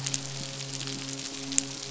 {"label": "biophony, midshipman", "recorder": "SoundTrap 500"}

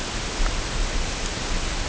{"label": "ambient", "recorder": "HydroMoth"}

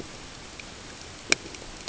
{"label": "ambient", "recorder": "HydroMoth"}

